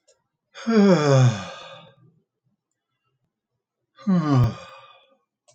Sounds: Sigh